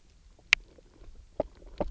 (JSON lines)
{"label": "biophony, knock croak", "recorder": "SoundTrap 300"}